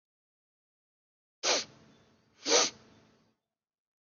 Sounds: Sniff